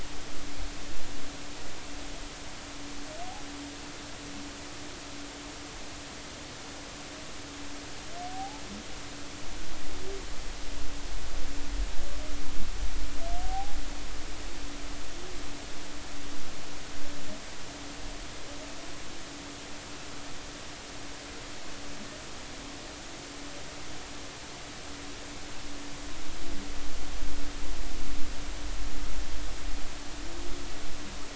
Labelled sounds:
8.3	8.6	humpback whale, 0.80 to 0.93 kHz
13.4	13.8	humpback whale, 0.80 to 0.86 kHz

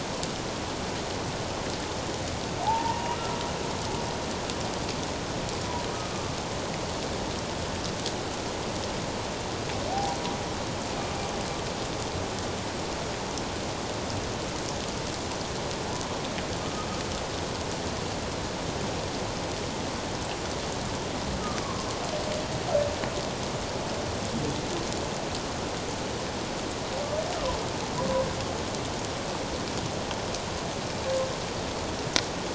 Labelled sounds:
2.6	3.4	humpback whale, 0.78 to 1.4 kHz
5.9	6.2	humpback whale, 1.2 to 1.3 kHz
9.9	10.2	humpback whale, 0.78 to 0.84 kHz
16.6	16.9	humpback whale, 1.2 to 1.3 kHz
21.6	21.9	humpback whale, 1.0 to 1.2 kHz

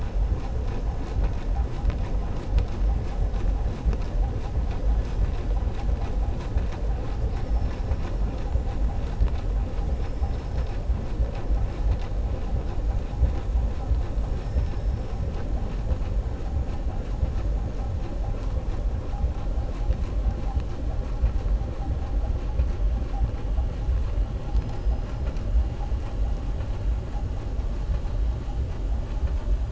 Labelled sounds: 14.3	14.9	killer whale, southern resident, 4.9 to 5.9 kHz

